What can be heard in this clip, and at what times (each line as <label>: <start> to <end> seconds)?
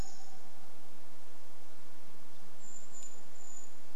truck beep: 0 to 2 seconds
warbler song: 0 to 2 seconds
Brown Creeper call: 2 to 4 seconds